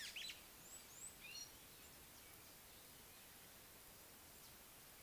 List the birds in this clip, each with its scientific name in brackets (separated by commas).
Gray-backed Camaroptera (Camaroptera brevicaudata)